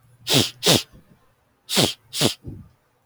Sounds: Sniff